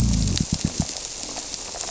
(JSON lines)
{"label": "biophony", "recorder": "SoundTrap 300"}